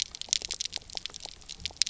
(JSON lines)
{"label": "biophony, pulse", "recorder": "SoundTrap 300"}